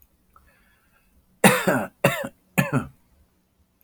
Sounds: Cough